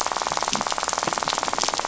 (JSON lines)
{"label": "biophony, rattle", "recorder": "SoundTrap 500"}